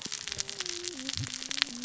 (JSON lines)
{"label": "biophony, cascading saw", "recorder": "SoundTrap 600 or HydroMoth"}